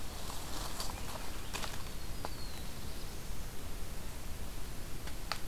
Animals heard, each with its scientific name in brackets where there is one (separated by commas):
Black-throated Blue Warbler (Setophaga caerulescens)